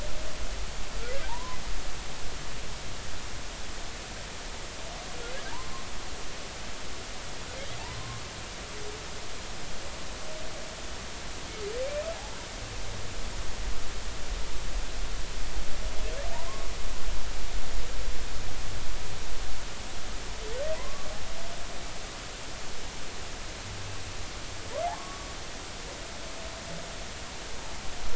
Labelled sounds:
1.2	1.6	humpback whale, 0.80 to 1.1 kHz
5.5	5.8	humpback whale, 0.83 to 1.1 kHz
7.8	8.2	humpback whale, 0.80 to 1.1 kHz
11.8	12.1	humpback whale, 2.1 to 2.6 kHz
20.7	21.1	humpback whale, 0.93 to 1.2 kHz
24.9	25.3	humpback whale, 1.0 to 1.2 kHz

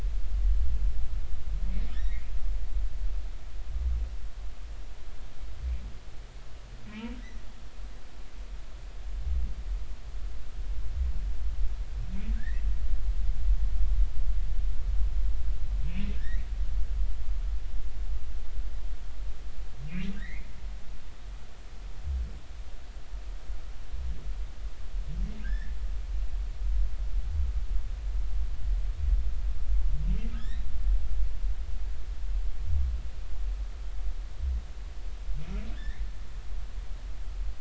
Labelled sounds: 1.9	2.3	humpback whale, 1.7 to 2.4 kHz
6.8	7.4	humpback whale, 2.5 to 6.0 kHz
12.4	12.6	humpback whale, 1.5 to 2.1 kHz
16.1	16.5	humpback whale, 1.6 to 2.1 kHz
20.1	20.5	humpback whale, 1.5 to 2.5 kHz
25.4	25.8	humpback whale, 1.5 to 2.0 kHz
30.3	30.6	humpback whale, 1.4 to 4.1 kHz
35.7	36.0	humpback whale, 1.5 to 3.8 kHz

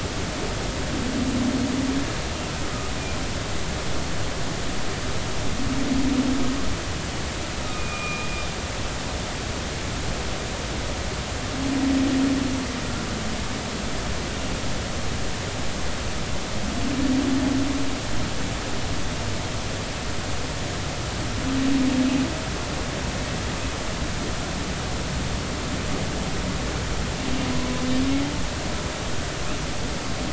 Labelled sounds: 7.7	8.3	humpback whale, 1.2 to 2.5 kHz

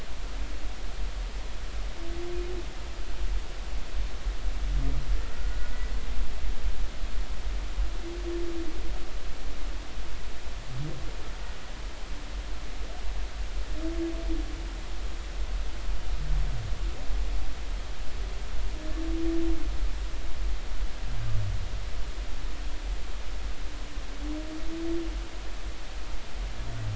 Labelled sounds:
5.3	5.7	humpback whale, 1.4 to 1.5 kHz

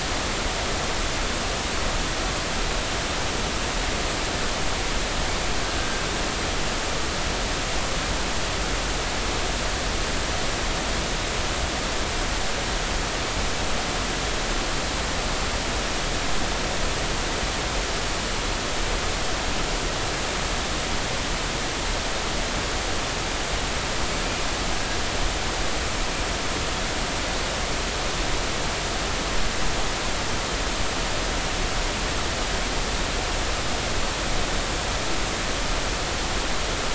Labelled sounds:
5.8	6.0	killer whale, Bigg's (transient), 1.5 to 1.6 kHz

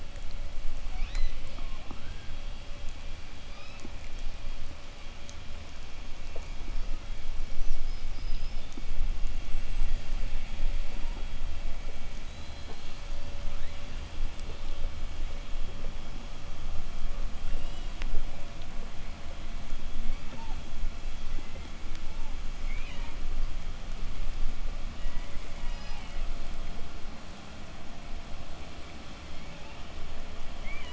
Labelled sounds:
0.6	2.5	killer whale, southern resident, 0 to 6.6 kHz
3.2	4.0	killer whale, southern resident, 0.20 to 5.9 kHz
7.1	8.8	killer whale, southern resident, 4.5 to 8.0 kHz
9.3	10.6	killer whale, southern resident, 6.5 to 8.0 kHz
12.0	14.3	killer whale, southern resident, 0.74 to 8.0 kHz
17.2	18.2	killer whale, southern resident, 1.4 to 7.4 kHz
19.8	23.3	killer whale, southern resident, 0.47 to 7.1 kHz
24.6	26.6	killer whale, southern resident, 0.46 to 6.8 kHz
29.1	30.9	killer whale, southern resident, 0.45 to 3.8 kHz

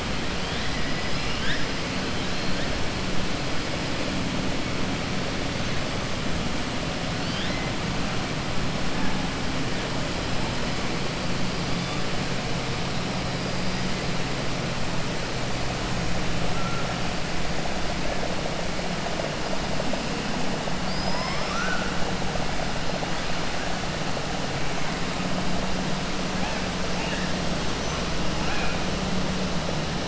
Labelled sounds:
1.0	1.7	killer whale, 1.4 to 5.8 kHz
20.8	21.9	killer whale, 0.73 to 6.2 kHz

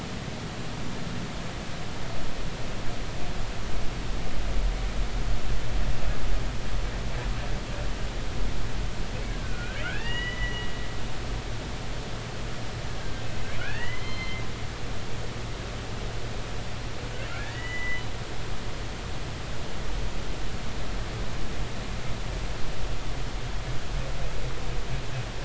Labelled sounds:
9.3	10.7	humpback whale, 1.3 to 3.0 kHz
13.0	13.2	humpback whale, 1.5 to 1.7 kHz
13.6	14.4	humpback whale, 1.4 to 4.2 kHz
17.4	18.0	humpback whale, 1.6 to 3.0 kHz

